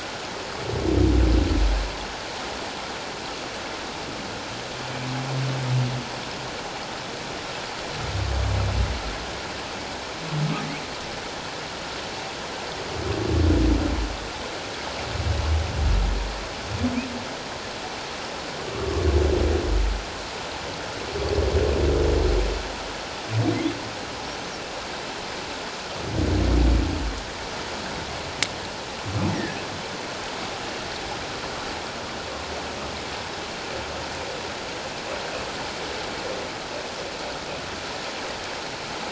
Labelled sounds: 18.7	19.0	humpback whale, 1.0 to 1.2 kHz
29.3	29.6	humpback whale, 1.6 to 2.0 kHz

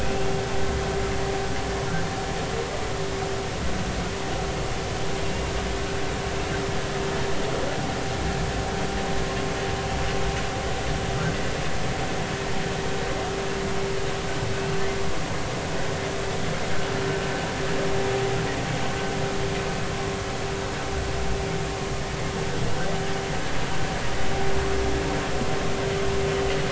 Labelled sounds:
0.0	0.3	humpback whale, 2.4 to 2.8 kHz

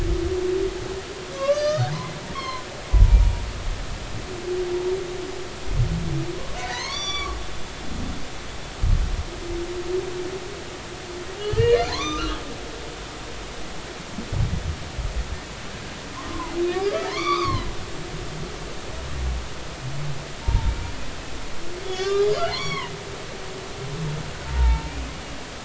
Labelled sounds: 1.3	2.7	humpback whale, 0.96 to 6.1 kHz
2.9	3.4	humpback whale, 0.86 to 1.0 kHz
6.6	7.4	humpback whale, 0.90 to 7.1 kHz
11.4	12.3	humpback whale, 0.93 to 4.4 kHz
16.3	17.7	humpback whale, 0.80 to 5.0 kHz
20.4	20.7	humpback whale, 0.86 to 0.99 kHz
21.8	22.9	humpback whale, 0.83 to 5.8 kHz
24.5	24.9	humpback whale, 0.83 to 0.96 kHz

